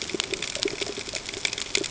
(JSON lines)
{"label": "ambient", "recorder": "HydroMoth"}